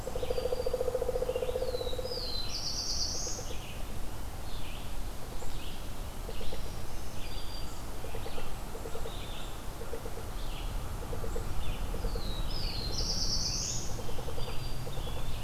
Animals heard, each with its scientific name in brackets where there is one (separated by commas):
Red-eyed Vireo (Vireo olivaceus), Eastern Wood-Pewee (Contopus virens), Black-throated Green Warbler (Setophaga virens), Pileated Woodpecker (Dryocopus pileatus), Black-throated Blue Warbler (Setophaga caerulescens)